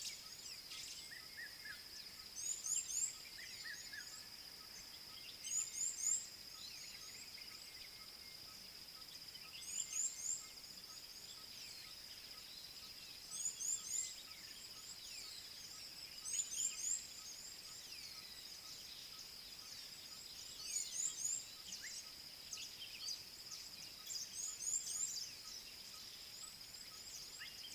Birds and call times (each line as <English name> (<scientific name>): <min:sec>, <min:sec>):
Red-chested Cuckoo (Cuculus solitarius): 0:01.5, 0:03.7
Red-cheeked Cordonbleu (Uraeginthus bengalus): 0:02.7, 0:05.8, 0:10.0, 0:13.8, 0:16.7, 0:21.1